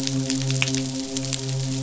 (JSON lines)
{"label": "biophony, midshipman", "recorder": "SoundTrap 500"}